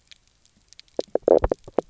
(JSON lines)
{"label": "biophony, knock croak", "recorder": "SoundTrap 300"}